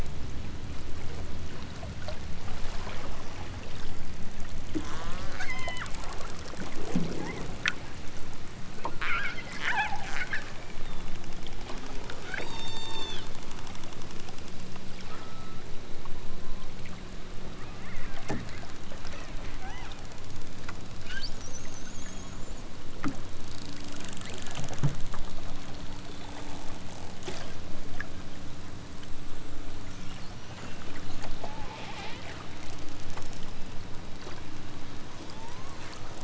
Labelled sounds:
4.8	5.9	killer whale, southern Alaska resident, 0.32 to 8.0 kHz
7.2	7.4	killer whale, southern Alaska resident, 0.73 to 2.4 kHz
12.2	13.3	killer whale, southern Alaska resident, 0.37 to 8.0 kHz
15.0	15.6	killer whale, southern Alaska resident, 0.92 to 4.1 kHz
19.0	20.0	killer whale, southern Alaska resident, 0.46 to 4.2 kHz
20.4	20.8	killer whale, southern Alaska resident, 1.6 to 4.4 kHz
22.0	22.4	killer whale, southern Alaska resident, 2.6 to 3.6 kHz
31.3	32.2	killer whale, southern Alaska resident, 0.46 to 5.8 kHz
35.2	35.8	killer whale, southern Alaska resident, 0.64 to 8.0 kHz

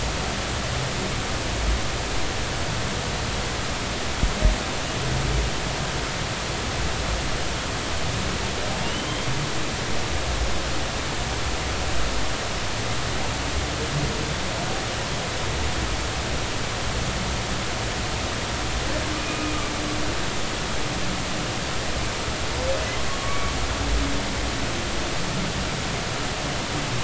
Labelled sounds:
8.8	9.3	humpback whale, 2.7 to 3.3 kHz
19.1	19.6	humpback whale, 2.3 to 2.5 kHz
23.2	23.5	humpback whale, 1.1 to 2.4 kHz

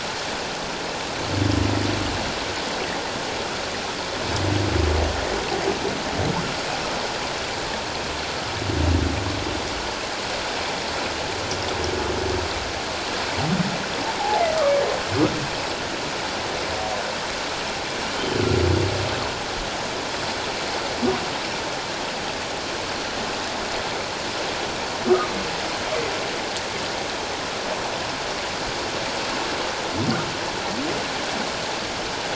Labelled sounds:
25.1	25.3	humpback whale, 1.1 to 1.3 kHz

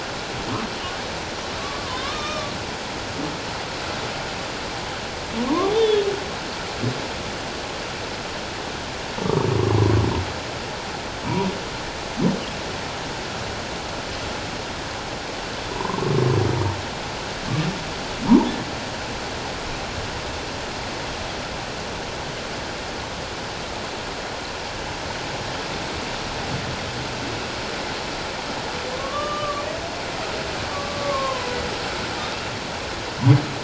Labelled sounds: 1.6	2.5	humpback whale, 0.97 to 5.6 kHz
5.3	6.1	humpback whale, 0.88 to 3.7 kHz
15.7	16.0	humpback whale, 0.84 to 1.1 kHz
29.0	29.6	humpback whale, 1.0 to 1.2 kHz
30.7	31.6	humpback whale, 0.94 to 1.2 kHz

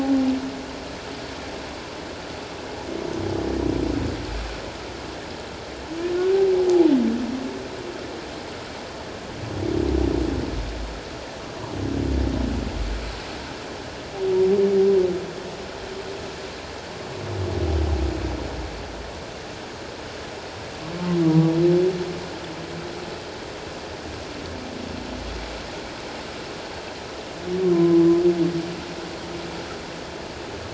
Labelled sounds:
27.7	28.1	humpback whale, 0.97 to 1.1 kHz

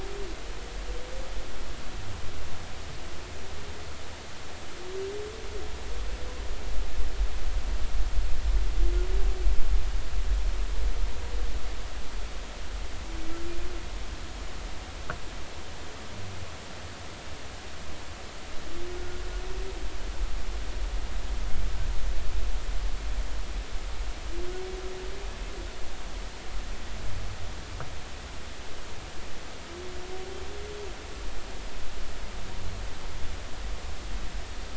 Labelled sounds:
18.9	19.2	humpback whale, 1.4 to 1.5 kHz

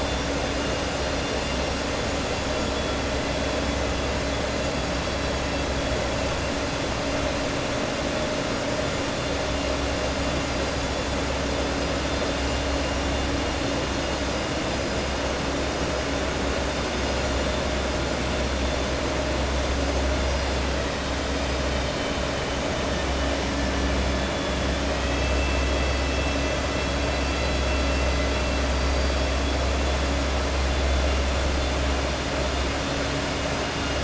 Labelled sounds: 21.2	22.2	vessel noise, 2.3 to 5.0 kHz

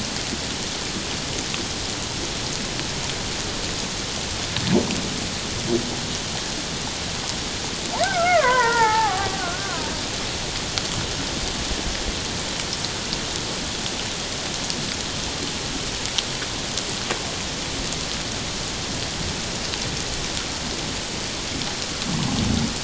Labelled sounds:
8.0	9.9	killer whale, Bigg's (transient), 0.78 to 2.2 kHz

